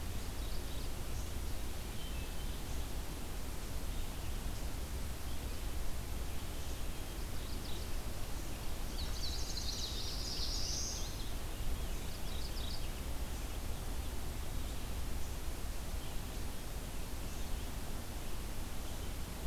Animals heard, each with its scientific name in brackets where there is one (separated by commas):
Indigo Bunting (Passerina cyanea), Chestnut-sided Warbler (Setophaga pensylvanica), Black-throated Blue Warbler (Setophaga caerulescens), Mourning Warbler (Geothlypis philadelphia), unidentified call